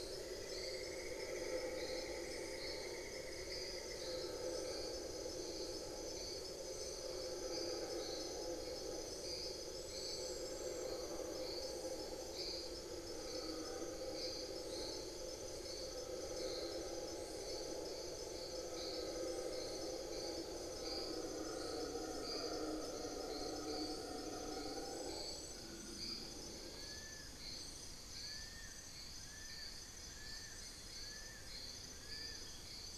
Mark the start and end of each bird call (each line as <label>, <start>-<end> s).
Cinnamon-throated Woodcreeper (Dendrexetastes rufigula), 0.0-4.5 s
Fasciated Antshrike (Cymbilaimus lineatus), 26.6-32.9 s
unidentified bird, 28.7-32.8 s